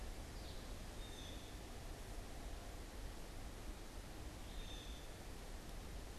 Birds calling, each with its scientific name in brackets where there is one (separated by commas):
Blue Jay (Cyanocitta cristata), Red-eyed Vireo (Vireo olivaceus)